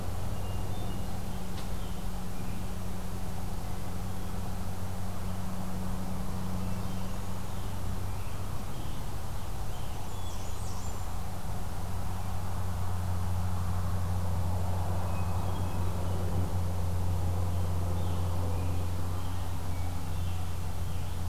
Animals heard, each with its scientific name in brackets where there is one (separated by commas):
Blackburnian Warbler (Setophaga fusca), Hermit Thrush (Catharus guttatus), Scarlet Tanager (Piranga olivacea)